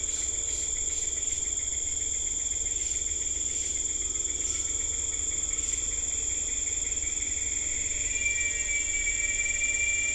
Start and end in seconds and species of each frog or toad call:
none

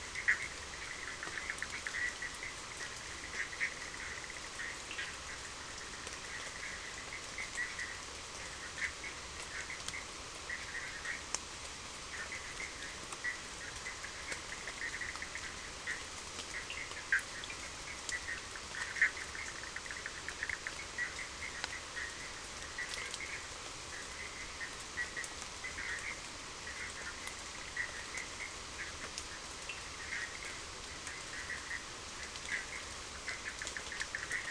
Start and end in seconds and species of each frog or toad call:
0.0	34.5	Bischoff's tree frog
4.8	5.0	Cochran's lime tree frog
16.6	16.9	Cochran's lime tree frog
29.7	29.8	Cochran's lime tree frog

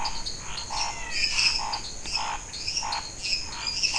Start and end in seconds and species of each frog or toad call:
0.0	3.9	dwarf tree frog
0.0	3.9	Scinax fuscovarius
0.7	1.7	menwig frog
0.7	3.9	lesser tree frog

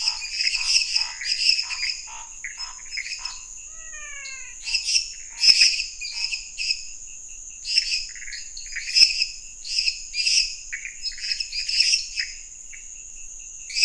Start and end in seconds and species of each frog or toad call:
0.0	3.5	Scinax fuscovarius
0.0	13.8	lesser tree frog
0.0	13.8	Pithecopus azureus
3.6	4.5	menwig frog

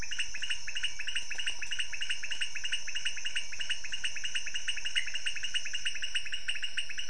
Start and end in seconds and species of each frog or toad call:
0.0	7.0	pointedbelly frog
4.9	5.1	Pithecopus azureus

